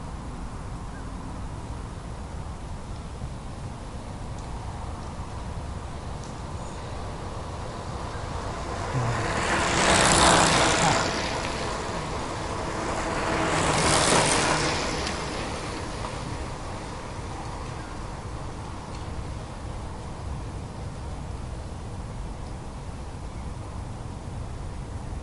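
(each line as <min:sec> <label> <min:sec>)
0:09.0 Motor vehicle passing by at speed. 0:11.5
0:13.0 Motor vehicle passing by at speed. 0:15.4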